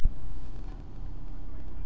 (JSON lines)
{"label": "anthrophony, boat engine", "recorder": "SoundTrap 300"}